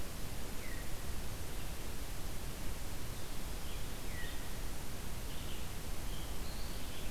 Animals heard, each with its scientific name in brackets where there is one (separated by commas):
Red-eyed Vireo (Vireo olivaceus)